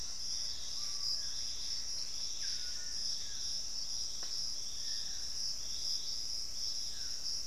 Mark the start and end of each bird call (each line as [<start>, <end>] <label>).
[0.00, 2.79] Screaming Piha (Lipaugus vociferans)
[0.00, 3.49] Gray Antbird (Cercomacra cinerascens)
[0.00, 7.46] Dusky-throated Antshrike (Thamnomanes ardesiacus)
[0.00, 7.46] Hauxwell's Thrush (Turdus hauxwelli)